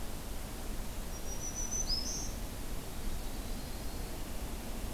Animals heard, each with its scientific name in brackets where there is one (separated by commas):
Yellow-rumped Warbler (Setophaga coronata), Black-throated Green Warbler (Setophaga virens)